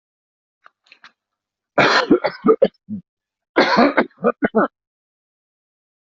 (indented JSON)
{
  "expert_labels": [
    {
      "quality": "good",
      "cough_type": "wet",
      "dyspnea": false,
      "wheezing": false,
      "stridor": false,
      "choking": false,
      "congestion": false,
      "nothing": true,
      "diagnosis": "obstructive lung disease",
      "severity": "mild"
    }
  ],
  "age": 68,
  "gender": "male",
  "respiratory_condition": false,
  "fever_muscle_pain": false,
  "status": "healthy"
}